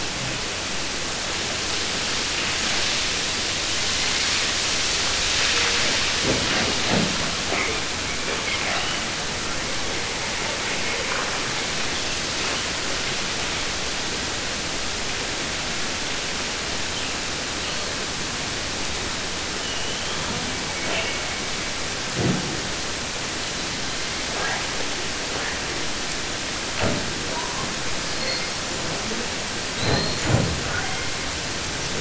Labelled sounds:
3.6	4.6	killer whale, southern resident, 1.4 to 4.6 kHz
5.1	6.2	killer whale, 0.14 to 4.5 kHz
9.4	13.2	killer whale, 0.16 to 3.2 kHz
16.9	18.0	killer whale, 1.3 to 4.5 kHz
19.6	20.3	killer whale, 2.7 to 3.8 kHz
20.2	21.8	killer whale, southern resident, 0.11 to 4.8 kHz
27.2	27.7	killer whale, 0.15 to 1.6 kHz
28.0	28.9	killer whale, 0.33 to 8.0 kHz
29.7	30.5	killer whale, 0.20 to 8.0 kHz
30.7	31.6	killer whale, southern resident, J pod, call S44, 0.33 to 3.7 kHz

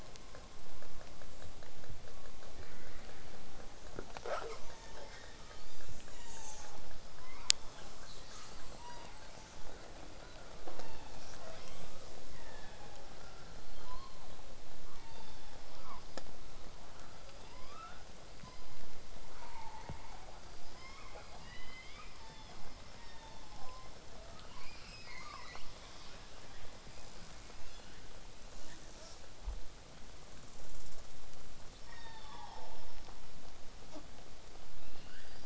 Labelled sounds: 1.4	1.5	killer whale, southern resident, J pod, call S05, 1.1 to 8.0 kHz
3.8	4.7	killer whale, southern resident, J pod, call S37i, 0.23 to 8.0 kHz
4.7	6.7	killer whale, southern resident, 0.70 to 8.0 kHz
7.6	9.2	killer whale, southern resident, call S10, 1.0 to 8.0 kHz
8.8	9.2	killer whale, southern resident, J pod, call S06, 0.72 to 5.9 kHz
10.2	10.6	killer whale, southern resident, 0.45 to 1.7 kHz
10.7	11.3	killer whale, southern resident, call S16, 0.58 to 4.8 kHz
11.4	12.1	killer whale, southern resident, J pod, call S44, 0.40 to 8.0 kHz
12.3	13.0	killer whale, southern resident, call S16, 1.3 to 3.7 kHz
13.4	14.4	killer whale, southern resident, whistle, 2.9 to 8.0 kHz
14.9	15.6	killer whale, southern resident, call S16, 0.67 to 4.7 kHz
15.8	16.0	killer whale, southern resident, 0.45 to 2.4 kHz
20.6	21.4	killer whale, southern resident, 0.27 to 3.4 kHz
21.2	22.1	killer whale, southern resident, L pod, call S19, 0.94 to 5.7 kHz
22.2	22.6	killer whale, southern resident, call S16, 0.49 to 5.7 kHz
23.0	23.8	killer whale, southern resident, call S16, 0.36 to 4.9 kHz
23.6	24.4	killer whale, southern resident, 0.40 to 1.3 kHz
28.6	29.2	killer whale, southern resident, J pod, call S05, 0.18 to 8.0 kHz
31.7	33.1	killer whale, southern resident, call S36, 0.27 to 5.7 kHz
34.7	35.4	killer whale, southern resident, L pod, call S19, 1.3 to 4.9 kHz

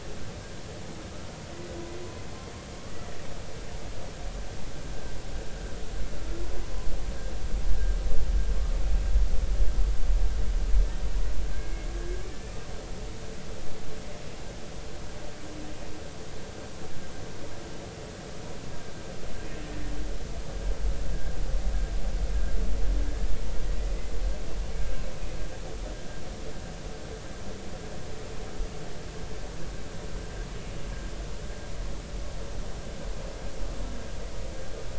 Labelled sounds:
11.6	11.9	humpback whale, 2.1 to 2.2 kHz
23.1	23.3	humpback whale, 1.6 to 1.8 kHz

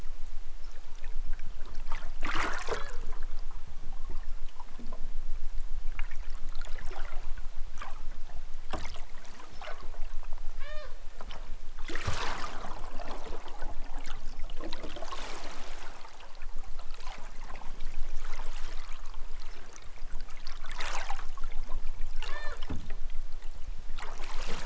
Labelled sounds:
10.5	11.0	killer whale, southern Alaska resident, 0.32 to 6.1 kHz
22.2	22.7	killer whale, southern Alaska resident, 0.23 to 6.2 kHz

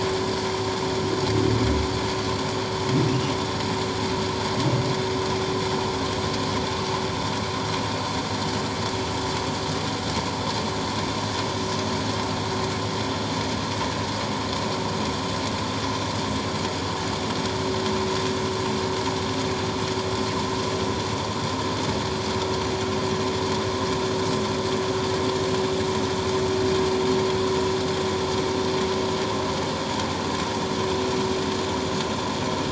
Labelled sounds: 3.1	3.3	humpback whale, 2.5 to 3.0 kHz

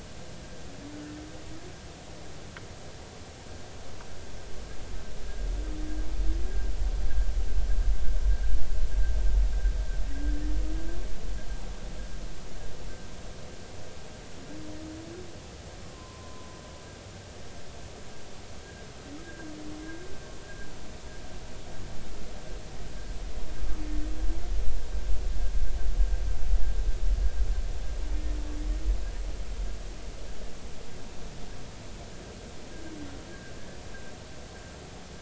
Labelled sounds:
16.8	17.5	humpback whale, 0.96 to 1.2 kHz
19.8	20.1	humpback whale, 1.6 to 1.7 kHz
33.3	33.5	humpback whale, 1.5 to 1.7 kHz

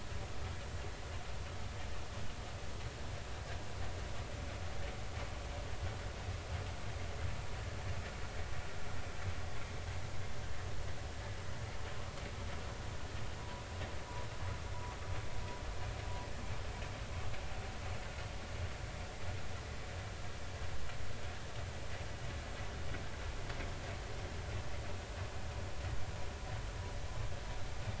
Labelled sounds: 13.4	13.7	vessel noise, 0.93 to 1.1 kHz

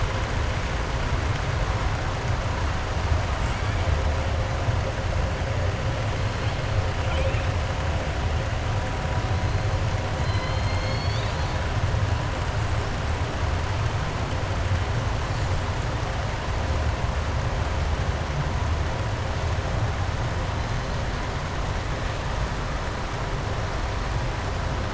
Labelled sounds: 7.0	7.5	killer whale, southern resident, 1.4 to 3.7 kHz
10.1	11.6	killer whale, southern resident, 2.0 to 5.4 kHz

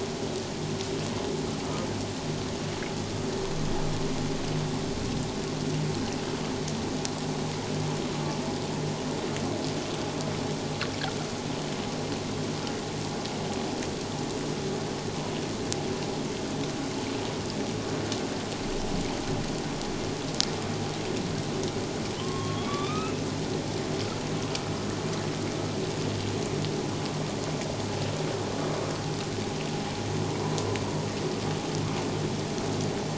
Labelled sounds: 22.2	23.2	humpback whale, 0.94 to 3.9 kHz

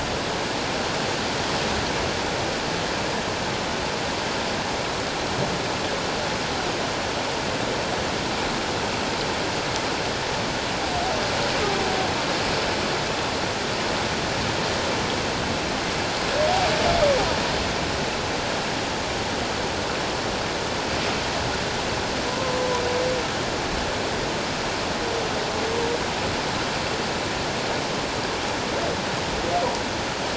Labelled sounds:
22.3	22.6	humpback whale, 0.88 to 1.1 kHz

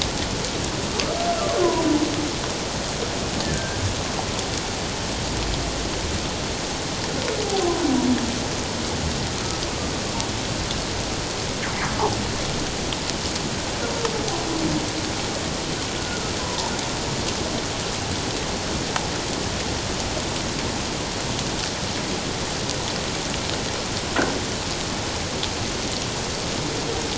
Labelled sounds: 3.4	3.8	humpback whale, 1.5 to 1.8 kHz
16.0	16.7	humpback whale, 0.84 to 1.5 kHz

